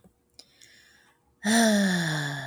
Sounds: Sigh